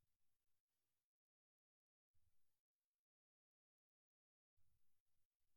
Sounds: Sigh